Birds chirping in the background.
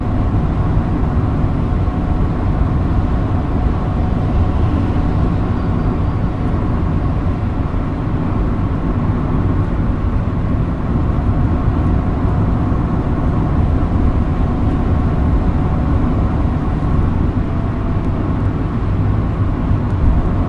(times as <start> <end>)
5.2 6.8